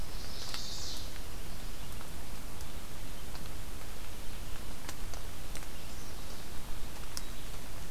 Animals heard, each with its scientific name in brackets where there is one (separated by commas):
Chestnut-sided Warbler (Setophaga pensylvanica)